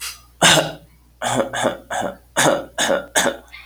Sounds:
Cough